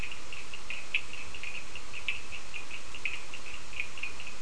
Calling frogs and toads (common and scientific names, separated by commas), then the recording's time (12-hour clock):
Cochran's lime tree frog (Sphaenorhynchus surdus)
5:00am